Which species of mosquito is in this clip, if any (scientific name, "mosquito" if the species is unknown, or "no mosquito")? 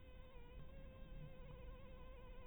Anopheles harrisoni